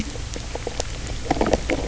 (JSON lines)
{"label": "biophony, grazing", "recorder": "SoundTrap 300"}